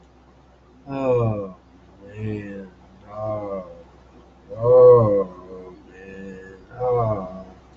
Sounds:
Sigh